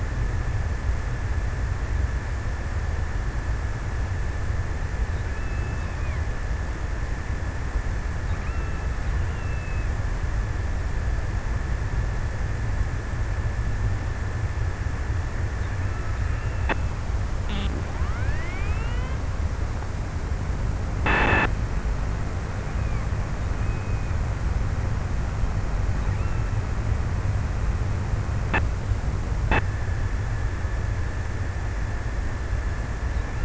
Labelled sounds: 5.1	7.3	killer whale, offshore, 1.1 to 2.9 kHz
8.3	10.5	killer whale, offshore, 0.88 to 3.7 kHz

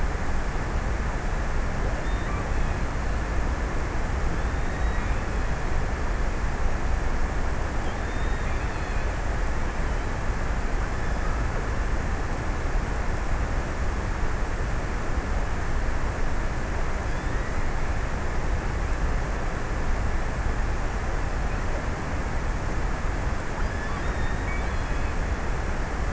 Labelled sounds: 1.3	3.6	killer whale, offshore, 1.6 to 4.1 kHz
4.3	5.8	killer whale, offshore, 1.7 to 4.0 kHz
7.8	9.5	killer whale, offshore, 1.7 to 4.5 kHz
23.0	26.1	killer whale, offshore, 1.9 to 5.8 kHz

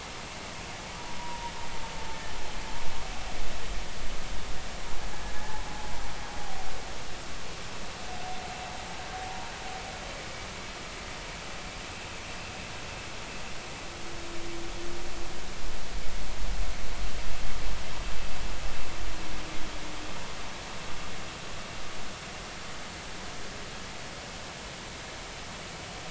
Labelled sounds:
1.2	1.5	humpback whale, 0.90 to 1.0 kHz
5.4	5.6	humpback whale, 0.80 to 0.90 kHz

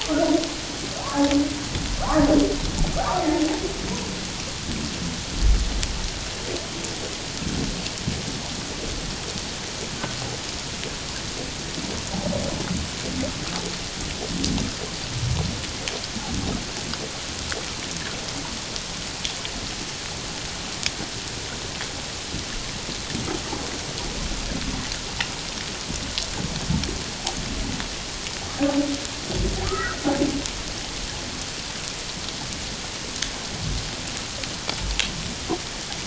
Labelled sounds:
0.0	0.3	humpback whale, 1.1 to 1.5 kHz
1.0	1.3	humpback whale, 0.91 to 1.2 kHz
29.6	30.0	humpback whale, 1.2 to 1.7 kHz

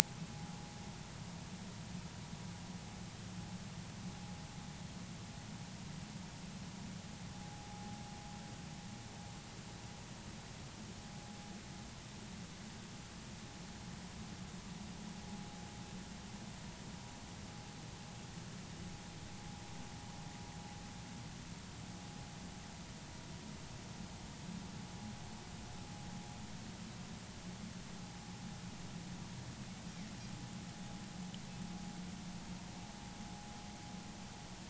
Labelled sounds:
7.4	7.7	vessel noise, 0.80 to 0.86 kHz

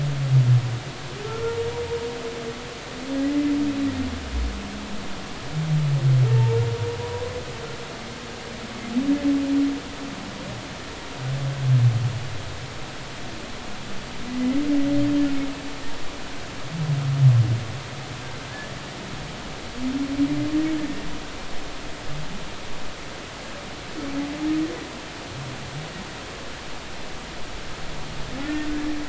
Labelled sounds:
6.3	7.4	humpback whale, 0.83 to 1.1 kHz
14.3	14.6	humpback whale, 2.0 to 2.1 kHz
18.5	18.7	humpback whale, 1.6 to 1.8 kHz
20.8	21.0	humpback whale, 1.7 to 1.9 kHz

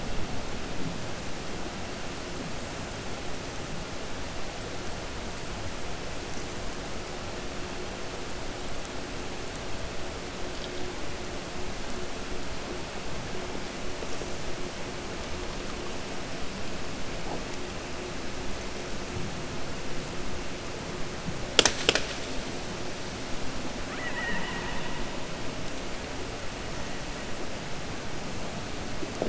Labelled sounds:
23.8	24.2	killer whale, 0.75 to 3.0 kHz

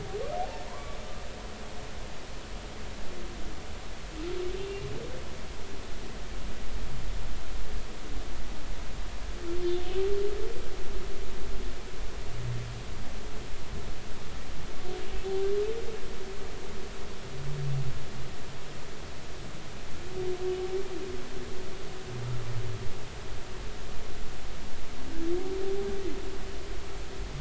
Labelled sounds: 0.7	1.0	humpback whale, 0.90 to 1.2 kHz

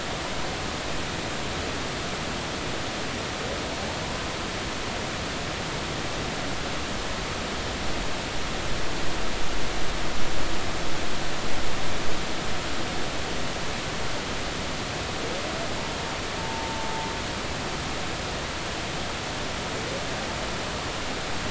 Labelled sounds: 16.4	17.1	humpback whale, 0.86 to 1.0 kHz

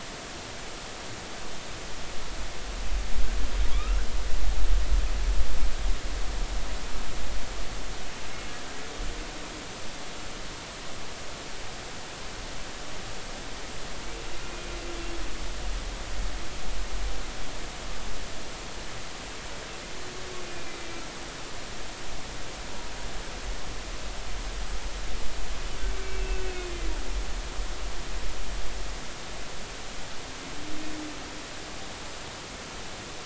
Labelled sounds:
3.7	4.1	humpback whale, 1.0 to 2.8 kHz
20.5	20.8	humpback whale, 2.3 to 2.5 kHz
26.0	26.5	humpback whale, 2.5 to 2.8 kHz

